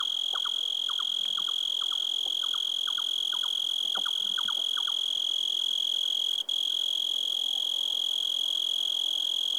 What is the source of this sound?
Oecanthus dulcisonans, an orthopteran